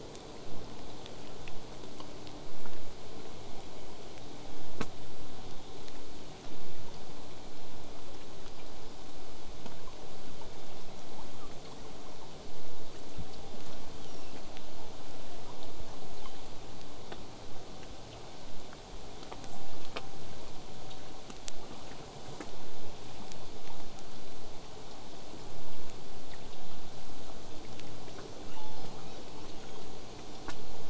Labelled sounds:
13.6	14.4	killer whale, southern resident, whistle, 2.4 to 8.0 kHz
28.4	29.3	killer whale, southern resident, L pod, call S36, 0.54 to 8.0 kHz
29.4	29.9	killer whale, southern resident, whistle, 3.0 to 6.7 kHz

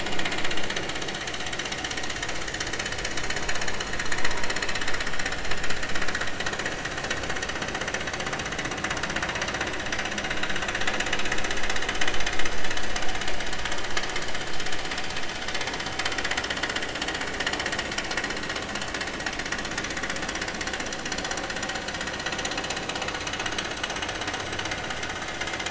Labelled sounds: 11.8	12.1	vessel noise, 2.9 to 3.2 kHz

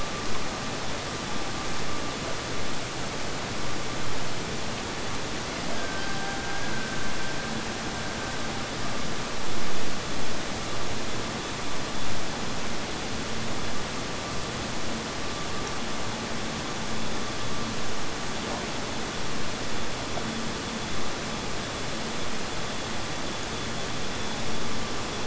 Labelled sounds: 5.4	8.7	killer whale, Bigg's (transient), Gulf of Alaska transient, 0.48 to 1.8 kHz

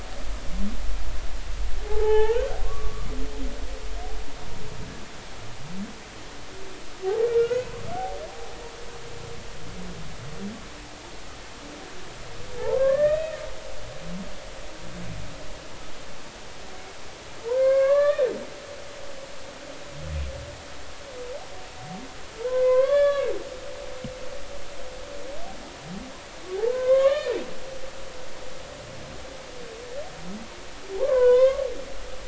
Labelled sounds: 1.9	3.2	humpback whale, 0.80 to 3.3 kHz
7.2	7.7	humpback whale, 1.3 to 1.5 kHz
12.6	13.4	humpback whale, 0.80 to 3.8 kHz
17.5	18.3	humpback whale, 0.86 to 3.7 kHz
22.4	23.3	humpback whale, 0.96 to 3.5 kHz
26.7	27.4	humpback whale, 0.96 to 4.3 kHz
31.0	31.7	humpback whale, 0.80 to 3.7 kHz

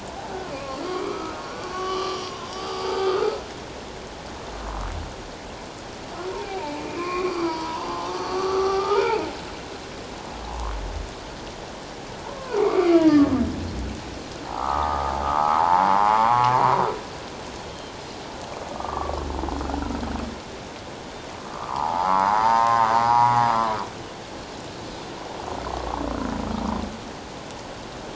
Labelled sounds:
0.5	3.4	humpback whale, 1.0 to 3.2 kHz
6.4	9.3	humpback whale, 0.78 to 4.9 kHz
12.4	13.3	humpback whale, 0.78 to 2.4 kHz
14.5	16.5	humpback whale, 0.78 to 1.4 kHz
18.8	19.2	humpback whale, 1.0 to 1.3 kHz
21.5	23.4	humpback whale, 0.78 to 1.4 kHz

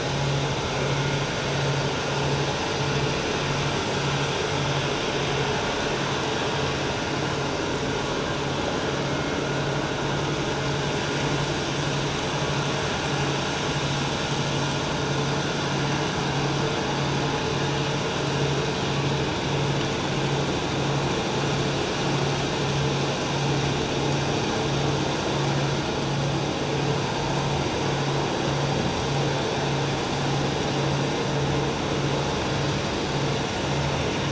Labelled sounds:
9.1	9.4	vessel noise, 2.1 to 2.2 kHz

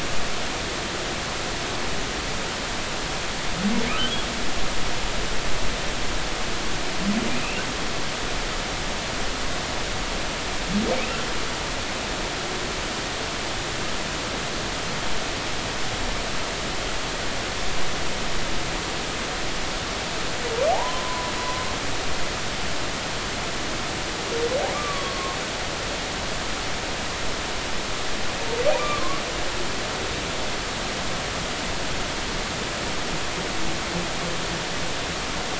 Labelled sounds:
20.7	21.3	humpback whale, 0.80 to 1.1 kHz
24.7	25.4	humpback whale, 1.0 to 1.2 kHz
28.7	29.2	humpback whale, 0.99 to 2.5 kHz

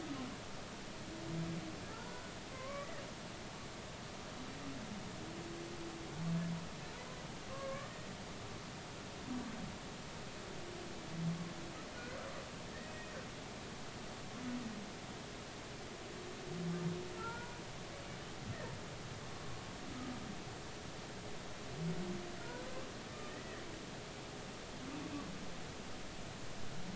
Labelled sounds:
1.9	2.9	humpback whale, 0.99 to 1.5 kHz
7.5	8.1	humpback whale, 1.0 to 1.9 kHz
17.2	17.5	humpback whale, 1.3 to 1.5 kHz
22.4	22.6	humpback whale, 1.3 to 1.5 kHz
23.3	23.6	humpback whale, 1.7 to 2.0 kHz

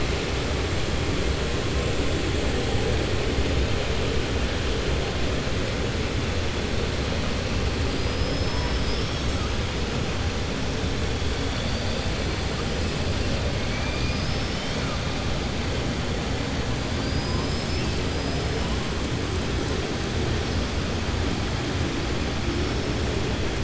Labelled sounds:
7.9	9.4	killer whale, southern resident, 3.3 to 6.3 kHz
13.6	14.8	killer whale, southern resident, 1.7 to 6.0 kHz
16.9	18.6	killer whale, southern resident, 4.4 to 5.8 kHz

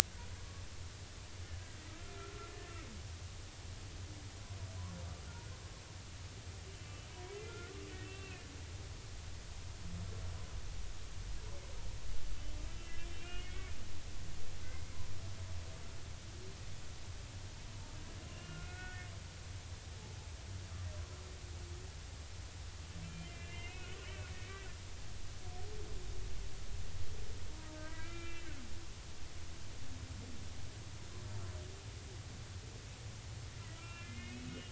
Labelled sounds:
1.9	2.5	humpback whale, 1.2 to 1.4 kHz
6.7	7.7	humpback whale, 0.93 to 2.8 kHz
8.0	8.5	humpback whale, 2.4 to 2.8 kHz
13.1	13.7	humpback whale, 2.1 to 2.9 kHz
14.6	14.9	humpback whale, 2.0 to 2.2 kHz
18.3	19.1	humpback whale, 1.3 to 2.9 kHz
23.0	24.7	humpback whale, 1.4 to 3.1 kHz
27.7	28.6	humpback whale, 1.2 to 3.8 kHz
33.8	34.6	humpback whale, 1.3 to 3.0 kHz

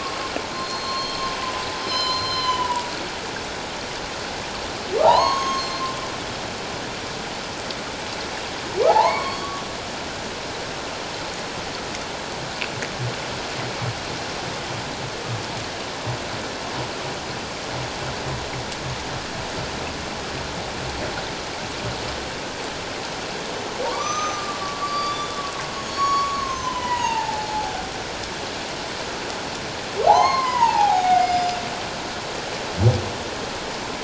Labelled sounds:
1.2	1.4	humpback whale, 6.2 to 6.4 kHz
1.7	2.9	humpback whale, 0.91 to 5.3 kHz
5.0	5.9	humpback whale, 0.78 to 6.6 kHz
8.9	9.5	humpback whale, 0.78 to 4.5 kHz
23.8	25.3	humpback whale, 0.88 to 6.2 kHz
25.7	27.8	humpback whale, 0.78 to 6.8 kHz
30.1	31.6	humpback whale, 0.78 to 7.2 kHz

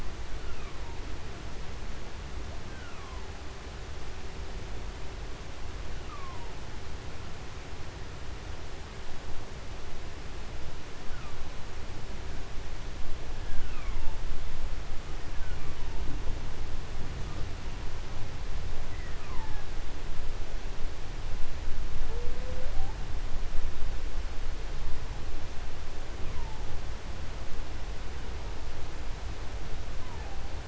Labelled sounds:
0.0	1.6	humpback whale, 0.28 to 3.3 kHz
2.5	3.5	humpback whale, 0.35 to 3.6 kHz
5.6	6.9	humpback whale, 0.41 to 3.9 kHz
10.8	11.8	humpback whale, 0.76 to 3.6 kHz
13.0	14.4	humpback whale, 0.39 to 3.6 kHz
14.9	16.3	humpback whale, 0.43 to 3.4 kHz
18.7	20.0	humpback whale, 0.41 to 2.9 kHz
21.9	23.1	humpback whale, 0.26 to 1.9 kHz
26.0	26.9	humpback whale, 0.45 to 3.1 kHz
29.8	30.6	humpback whale, 0.50 to 3.0 kHz

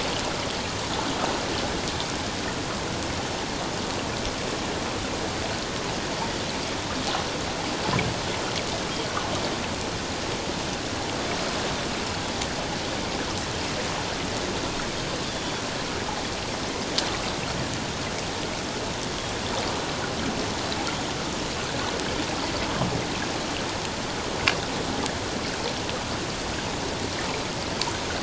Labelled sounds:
15.3	15.6	Pacific white-sided dolphin, 3.3 to 3.5 kHz

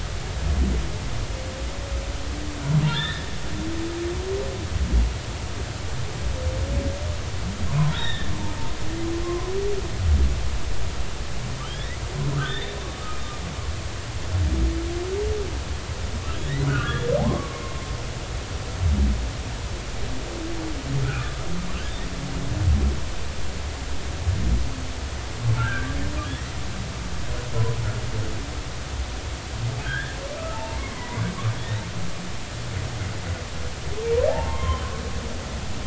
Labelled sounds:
2.9	3.3	humpback whale, 1.2 to 3.9 kHz
7.9	8.3	humpback whale, 1.5 to 3.8 kHz
9.2	9.5	humpback whale, 0.96 to 1.1 kHz
11.6	12.7	humpback whale, 1.2 to 3.8 kHz
16.7	17.7	humpback whale, 0.80 to 2.9 kHz
21.0	21.5	humpback whale, 1.2 to 1.5 kHz
25.6	25.9	humpback whale, 1.3 to 1.7 kHz
29.8	30.2	humpback whale, 1.4 to 1.9 kHz
30.5	31.2	humpback whale, 0.83 to 2.2 kHz
34.3	34.9	humpback whale, 0.80 to 3.2 kHz

